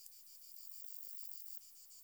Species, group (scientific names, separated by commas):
Saga hellenica, Orthoptera